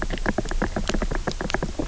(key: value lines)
label: biophony, knock
recorder: SoundTrap 300